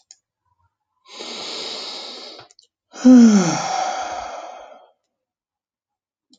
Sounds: Sigh